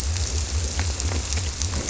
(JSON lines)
{"label": "biophony", "recorder": "SoundTrap 300"}